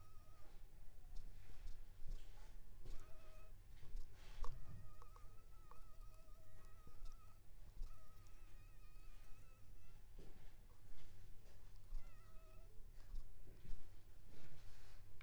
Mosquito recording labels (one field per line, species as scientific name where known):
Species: Anopheles funestus s.s.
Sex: female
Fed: unfed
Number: one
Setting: cup